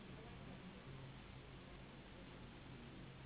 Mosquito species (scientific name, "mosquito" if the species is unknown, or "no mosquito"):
Anopheles gambiae s.s.